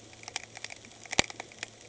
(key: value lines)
label: anthrophony, boat engine
recorder: HydroMoth